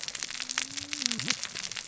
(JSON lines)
{"label": "biophony, cascading saw", "recorder": "SoundTrap 600 or HydroMoth"}